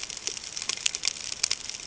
{"label": "ambient", "recorder": "HydroMoth"}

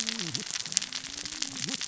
{"label": "biophony, cascading saw", "recorder": "SoundTrap 600 or HydroMoth"}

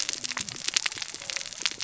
{"label": "biophony, cascading saw", "recorder": "SoundTrap 600 or HydroMoth"}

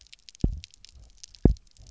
{"label": "biophony, double pulse", "recorder": "SoundTrap 300"}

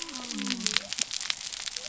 {"label": "biophony", "recorder": "SoundTrap 300"}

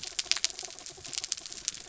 {"label": "anthrophony, mechanical", "recorder": "SoundTrap 300"}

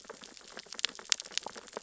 {"label": "biophony, sea urchins (Echinidae)", "recorder": "SoundTrap 600 or HydroMoth"}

